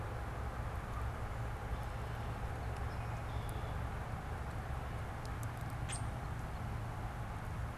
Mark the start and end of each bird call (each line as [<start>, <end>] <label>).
[3.15, 3.95] Red-winged Blackbird (Agelaius phoeniceus)
[5.75, 6.25] Common Grackle (Quiscalus quiscula)